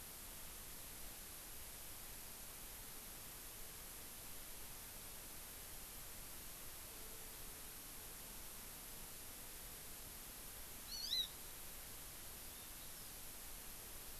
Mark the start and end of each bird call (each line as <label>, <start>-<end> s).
Hawaii Amakihi (Chlorodrepanis virens), 10.9-11.3 s
Hawaii Amakihi (Chlorodrepanis virens), 12.4-13.2 s